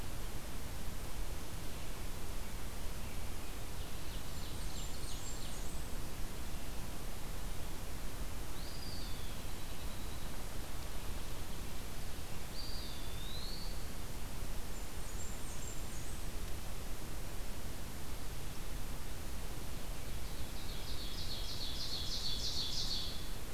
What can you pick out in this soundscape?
Ovenbird, Blackburnian Warbler, Eastern Wood-Pewee, Black-capped Chickadee